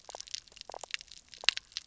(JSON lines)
{"label": "biophony", "recorder": "SoundTrap 300"}